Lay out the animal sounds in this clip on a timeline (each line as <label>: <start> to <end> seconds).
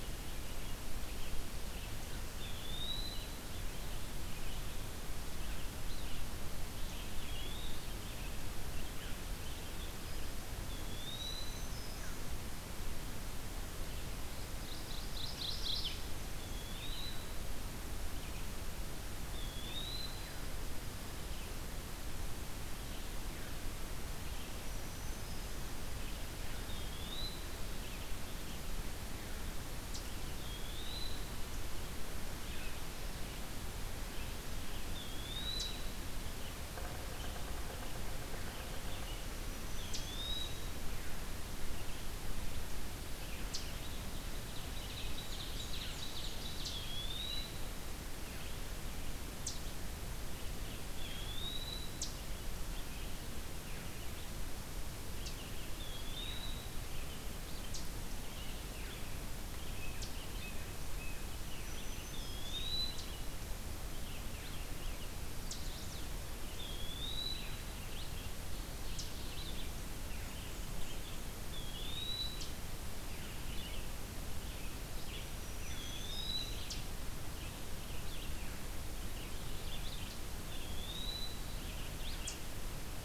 Red-eyed Vireo (Vireo olivaceus): 0.0 to 10.5 seconds
Eastern Wood-Pewee (Contopus virens): 2.2 to 3.5 seconds
Eastern Wood-Pewee (Contopus virens): 7.0 to 7.8 seconds
Eastern Wood-Pewee (Contopus virens): 10.4 to 11.7 seconds
Black-throated Green Warbler (Setophaga virens): 10.5 to 12.3 seconds
Mourning Warbler (Geothlypis philadelphia): 14.3 to 16.0 seconds
Eastern Wood-Pewee (Contopus virens): 16.3 to 17.4 seconds
Eastern Wood-Pewee (Contopus virens): 19.3 to 20.4 seconds
Red-eyed Vireo (Vireo olivaceus): 21.1 to 83.0 seconds
Black-throated Green Warbler (Setophaga virens): 24.4 to 25.7 seconds
Eastern Wood-Pewee (Contopus virens): 26.6 to 27.6 seconds
Eastern Chipmunk (Tamias striatus): 29.8 to 30.1 seconds
Eastern Wood-Pewee (Contopus virens): 30.3 to 31.5 seconds
Eastern Wood-Pewee (Contopus virens): 34.7 to 36.0 seconds
Eastern Chipmunk (Tamias striatus): 35.5 to 35.8 seconds
Yellow-bellied Sapsucker (Sphyrapicus varius): 36.7 to 39.0 seconds
Eastern Wood-Pewee (Contopus virens): 39.6 to 40.9 seconds
Eastern Chipmunk (Tamias striatus): 39.9 to 40.1 seconds
Eastern Chipmunk (Tamias striatus): 43.4 to 43.7 seconds
Ovenbird (Seiurus aurocapilla): 43.7 to 47.3 seconds
Black-and-white Warbler (Mniotilta varia): 45.0 to 46.4 seconds
Eastern Chipmunk (Tamias striatus): 46.5 to 46.8 seconds
Eastern Wood-Pewee (Contopus virens): 46.6 to 47.6 seconds
Eastern Chipmunk (Tamias striatus): 49.3 to 49.7 seconds
Eastern Wood-Pewee (Contopus virens): 50.8 to 51.9 seconds
Eastern Chipmunk (Tamias striatus): 51.9 to 52.1 seconds
Eastern Chipmunk (Tamias striatus): 55.1 to 55.4 seconds
Eastern Wood-Pewee (Contopus virens): 55.7 to 56.8 seconds
Eastern Chipmunk (Tamias striatus): 57.7 to 58.0 seconds
Eastern Chipmunk (Tamias striatus): 59.8 to 60.2 seconds
Blue Jay (Cyanocitta cristata): 60.3 to 61.3 seconds
Black-throated Green Warbler (Setophaga virens): 61.5 to 62.7 seconds
Eastern Wood-Pewee (Contopus virens): 62.0 to 63.1 seconds
Eastern Chipmunk (Tamias striatus): 62.8 to 63.2 seconds
Chestnut-sided Warbler (Setophaga pensylvanica): 65.3 to 66.1 seconds
Eastern Chipmunk (Tamias striatus): 65.4 to 65.6 seconds
Eastern Wood-Pewee (Contopus virens): 66.6 to 67.8 seconds
Eastern Chipmunk (Tamias striatus): 68.9 to 69.3 seconds
Eastern Wood-Pewee (Contopus virens): 71.4 to 72.4 seconds
Eastern Chipmunk (Tamias striatus): 72.3 to 72.7 seconds
Black-throated Green Warbler (Setophaga virens): 75.2 to 76.5 seconds
Eastern Wood-Pewee (Contopus virens): 75.6 to 76.8 seconds
Eastern Chipmunk (Tamias striatus): 76.6 to 76.8 seconds
Eastern Wood-Pewee (Contopus virens): 80.2 to 81.5 seconds
Eastern Chipmunk (Tamias striatus): 82.2 to 82.4 seconds